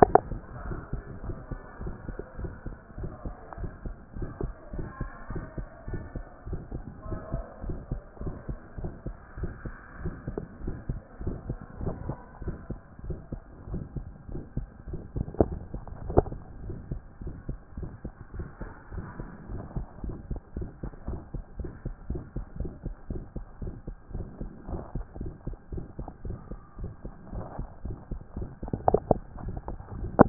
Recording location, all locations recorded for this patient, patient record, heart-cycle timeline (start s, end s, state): mitral valve (MV)
aortic valve (AV)+pulmonary valve (PV)+tricuspid valve (TV)+mitral valve (MV)
#Age: Child
#Sex: Male
#Height: 133.0 cm
#Weight: 24.8 kg
#Pregnancy status: False
#Murmur: Present
#Murmur locations: aortic valve (AV)+mitral valve (MV)+pulmonary valve (PV)+tricuspid valve (TV)
#Most audible location: pulmonary valve (PV)
#Systolic murmur timing: Early-systolic
#Systolic murmur shape: Decrescendo
#Systolic murmur grading: II/VI
#Systolic murmur pitch: Medium
#Systolic murmur quality: Harsh
#Diastolic murmur timing: nan
#Diastolic murmur shape: nan
#Diastolic murmur grading: nan
#Diastolic murmur pitch: nan
#Diastolic murmur quality: nan
#Outcome: Abnormal
#Campaign: 2014 screening campaign
0.00	0.16	S1
0.16	0.30	systole
0.30	0.42	S2
0.42	0.64	diastole
0.64	0.80	S1
0.80	0.92	systole
0.92	1.04	S2
1.04	1.24	diastole
1.24	1.36	S1
1.36	1.50	systole
1.50	1.60	S2
1.60	1.82	diastole
1.82	1.94	S1
1.94	2.08	systole
2.08	2.18	S2
2.18	2.40	diastole
2.40	2.52	S1
2.52	2.66	systole
2.66	2.76	S2
2.76	2.98	diastole
2.98	3.10	S1
3.10	3.24	systole
3.24	3.36	S2
3.36	3.60	diastole
3.60	3.72	S1
3.72	3.84	systole
3.84	3.96	S2
3.96	4.18	diastole
4.18	4.30	S1
4.30	4.42	systole
4.42	4.54	S2
4.54	4.76	diastole
4.76	4.88	S1
4.88	5.00	systole
5.00	5.10	S2
5.10	5.32	diastole
5.32	5.44	S1
5.44	5.58	systole
5.58	5.68	S2
5.68	5.90	diastole
5.90	6.04	S1
6.04	6.16	systole
6.16	6.26	S2
6.26	6.48	diastole
6.48	6.62	S1
6.62	6.76	systole
6.76	6.86	S2
6.86	7.08	diastole
7.08	7.20	S1
7.20	7.32	systole
7.32	7.44	S2
7.44	7.66	diastole
7.66	7.78	S1
7.78	7.90	systole
7.90	8.02	S2
8.02	8.24	diastole
8.24	8.36	S1
8.36	8.50	systole
8.50	8.58	S2
8.58	8.80	diastole
8.80	8.92	S1
8.92	9.06	systole
9.06	9.16	S2
9.16	9.40	diastole
9.40	9.52	S1
9.52	9.66	systole
9.66	9.78	S2
9.78	10.02	diastole
10.02	10.16	S1
10.16	10.32	systole
10.32	10.44	S2
10.44	10.64	diastole
10.64	10.78	S1
10.78	10.90	systole
10.90	11.02	S2
11.02	11.22	diastole
11.22	11.38	S1
11.38	11.48	systole
11.48	11.58	S2
11.58	11.80	diastole
11.80	11.94	S1
11.94	12.06	systole
12.06	12.18	S2
12.18	12.42	diastole
12.42	12.56	S1
12.56	12.70	systole
12.70	12.80	S2
12.80	13.04	diastole
13.04	13.18	S1
13.18	13.34	systole
13.34	13.46	S2
13.46	13.70	diastole
13.70	13.84	S1
13.84	13.98	systole
13.98	14.08	S2
14.08	14.30	diastole
14.30	14.42	S1
14.42	14.58	systole
14.58	14.68	S2
14.68	14.90	diastole
14.90	15.02	S1
15.02	15.16	systole
15.16	15.28	S2
15.28	15.48	diastole
15.48	15.60	S1
15.60	15.74	systole
15.74	15.84	S2
15.84	16.06	diastole
16.06	16.26	S1
16.26	16.36	systole
16.36	16.44	S2
16.44	16.64	diastole
16.64	16.78	S1
16.78	16.92	systole
16.92	17.02	S2
17.02	17.24	diastole
17.24	17.36	S1
17.36	17.48	systole
17.48	17.58	S2
17.58	17.78	diastole
17.78	17.90	S1
17.90	18.04	systole
18.04	18.14	S2
18.14	18.36	diastole
18.36	18.48	S1
18.48	18.62	systole
18.62	18.72	S2
18.72	18.94	diastole
18.94	19.06	S1
19.06	19.20	systole
19.20	19.28	S2
19.28	19.50	diastole
19.50	19.62	S1
19.62	19.74	systole
19.74	19.86	S2
19.86	20.04	diastole
20.04	20.16	S1
20.16	20.28	systole
20.28	20.38	S2
20.38	20.58	diastole
20.58	20.70	S1
20.70	20.82	systole
20.82	20.90	S2
20.90	21.08	diastole
21.08	21.20	S1
21.20	21.32	systole
21.32	21.42	S2
21.42	21.60	diastole
21.60	21.72	S1
21.72	21.84	systole
21.84	21.94	S2
21.94	22.10	diastole
22.10	22.22	S1
22.22	22.36	systole
22.36	22.44	S2
22.44	22.60	diastole
22.60	22.72	S1
22.72	22.84	systole
22.84	22.94	S2
22.94	23.10	diastole
23.10	23.22	S1
23.22	23.36	systole
23.36	23.44	S2
23.44	23.62	diastole
23.62	23.74	S1
23.74	23.88	systole
23.88	23.96	S2
23.96	24.14	diastole
24.14	24.26	S1
24.26	24.40	systole
24.40	24.50	S2
24.50	24.70	diastole
24.70	24.84	S1
24.84	24.96	systole
24.96	25.06	S2
25.06	25.20	diastole
25.20	25.32	S1
25.32	25.46	systole
25.46	25.54	S2
25.54	25.74	diastole
25.74	25.86	S1
25.86	26.00	systole
26.00	26.08	S2
26.08	26.26	diastole
26.26	26.38	S1
26.38	26.52	systole
26.52	26.60	S2
26.60	26.80	diastole
26.80	26.92	S1
26.92	27.06	systole
27.06	27.14	S2
27.14	27.34	diastole
27.34	27.46	S1
27.46	27.58	systole
27.58	27.66	S2
27.66	27.86	diastole
27.86	27.98	S1
27.98	28.12	systole
28.12	28.20	S2
28.20	28.38	diastole
28.38	28.50	S1
28.50	28.62	systole
28.62	28.70	S2
28.70	28.86	diastole
28.86	29.02	S1
29.02	29.12	systole
29.12	29.22	S2
29.22	29.44	diastole
29.44	29.56	S1
29.56	29.68	systole
29.68	29.78	S2
29.78	29.98	diastole
29.98	30.14	S1
30.14	30.29	systole